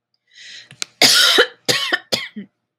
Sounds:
Cough